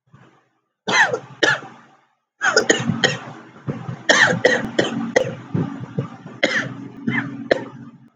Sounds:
Cough